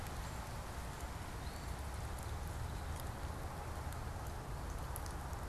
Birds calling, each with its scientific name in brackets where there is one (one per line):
unidentified bird